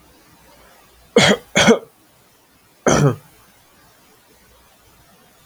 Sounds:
Cough